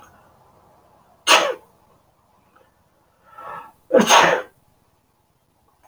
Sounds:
Sneeze